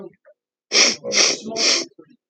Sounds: Sniff